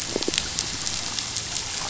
{"label": "biophony", "recorder": "SoundTrap 500"}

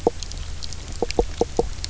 {"label": "biophony, knock croak", "recorder": "SoundTrap 300"}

